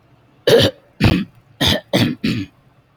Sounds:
Throat clearing